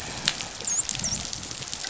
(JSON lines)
{"label": "biophony, dolphin", "recorder": "SoundTrap 500"}